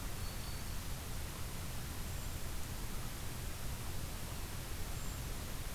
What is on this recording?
Black-throated Green Warbler, Brown Creeper